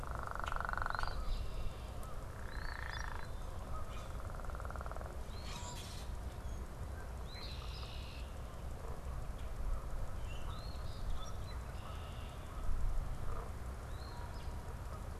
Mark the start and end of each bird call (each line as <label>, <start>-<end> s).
Common Grackle (Quiscalus quiscula), 0.0-0.7 s
Canada Goose (Branta canadensis), 0.0-15.2 s
Eastern Phoebe (Sayornis phoebe), 0.7-1.6 s
Eastern Phoebe (Sayornis phoebe), 2.4-3.2 s
Common Grackle (Quiscalus quiscula), 2.8-3.3 s
Common Grackle (Quiscalus quiscula), 3.8-4.1 s
Eastern Phoebe (Sayornis phoebe), 5.2-6.0 s
Common Grackle (Quiscalus quiscula), 5.4-6.1 s
Eastern Phoebe (Sayornis phoebe), 7.1-8.0 s
Red-winged Blackbird (Agelaius phoeniceus), 7.3-8.5 s
Eastern Phoebe (Sayornis phoebe), 10.4-11.1 s
Common Grackle (Quiscalus quiscula), 11.0-11.7 s
Red-winged Blackbird (Agelaius phoeniceus), 11.7-12.4 s
Eastern Phoebe (Sayornis phoebe), 13.8-14.6 s